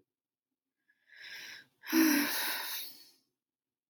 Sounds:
Sigh